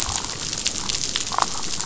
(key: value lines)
label: biophony, damselfish
recorder: SoundTrap 500